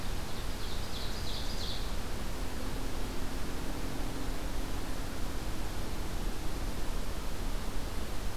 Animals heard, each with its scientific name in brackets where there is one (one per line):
Ovenbird (Seiurus aurocapilla)